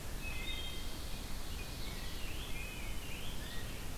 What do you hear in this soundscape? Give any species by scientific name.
Vireo olivaceus, Hylocichla mustelina, Seiurus aurocapilla, Pheucticus ludovicianus